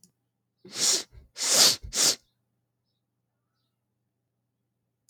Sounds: Sniff